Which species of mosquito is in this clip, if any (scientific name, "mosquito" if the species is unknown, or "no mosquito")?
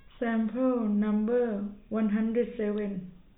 no mosquito